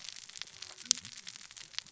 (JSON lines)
{"label": "biophony, cascading saw", "recorder": "SoundTrap 600 or HydroMoth"}